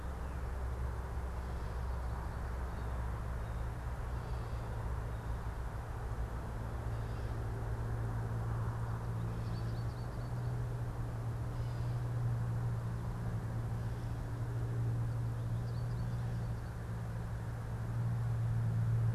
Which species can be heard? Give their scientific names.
Cyanocitta cristata, Dumetella carolinensis, Spinus tristis